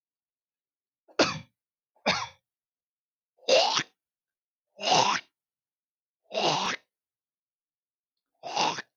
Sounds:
Throat clearing